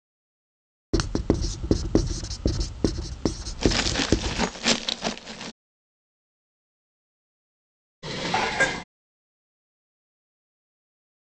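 At 0.93 seconds, the sound of writing begins. Over it, at 3.48 seconds, glass is audible. Later, at 8.02 seconds, you can hear dishes.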